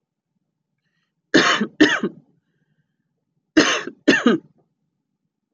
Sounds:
Cough